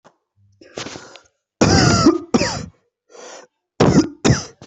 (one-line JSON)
{"expert_labels": [{"quality": "ok", "cough_type": "dry", "dyspnea": false, "wheezing": true, "stridor": false, "choking": false, "congestion": false, "nothing": false, "diagnosis": "COVID-19", "severity": "mild"}], "age": 21, "gender": "male", "respiratory_condition": false, "fever_muscle_pain": false, "status": "healthy"}